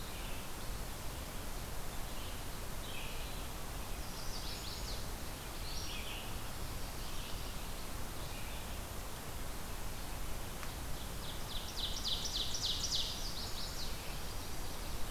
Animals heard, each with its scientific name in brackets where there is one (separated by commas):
Chestnut-sided Warbler (Setophaga pensylvanica), Ovenbird (Seiurus aurocapilla), Red-eyed Vireo (Vireo olivaceus)